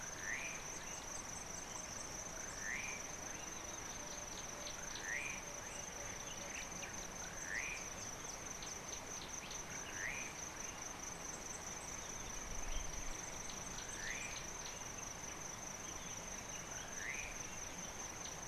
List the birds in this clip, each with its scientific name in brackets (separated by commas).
Slate-colored Boubou (Laniarius funebris), Yellow Bishop (Euplectes capensis)